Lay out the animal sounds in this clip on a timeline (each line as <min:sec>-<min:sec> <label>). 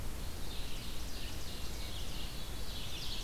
0:00.0-0:03.2 Red-eyed Vireo (Vireo olivaceus)
0:00.1-0:03.2 Ovenbird (Seiurus aurocapilla)
0:02.1-0:03.2 Veery (Catharus fuscescens)